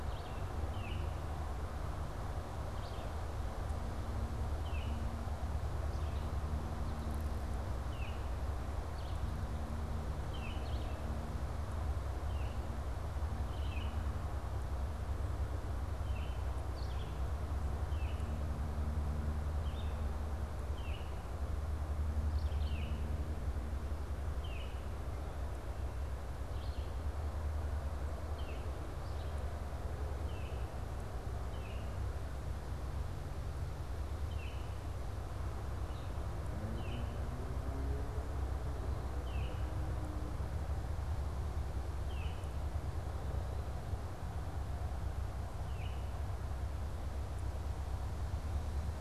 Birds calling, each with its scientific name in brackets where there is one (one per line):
Baltimore Oriole (Icterus galbula)
Red-eyed Vireo (Vireo olivaceus)